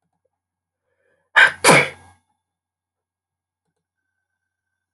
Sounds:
Sneeze